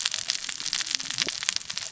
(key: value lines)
label: biophony, cascading saw
recorder: SoundTrap 600 or HydroMoth